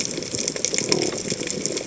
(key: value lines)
label: biophony
recorder: HydroMoth